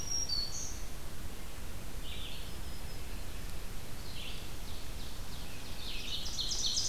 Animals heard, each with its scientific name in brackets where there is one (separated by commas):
Black-throated Green Warbler (Setophaga virens), Ovenbird (Seiurus aurocapilla), Red-eyed Vireo (Vireo olivaceus)